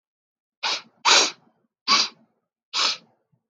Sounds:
Sniff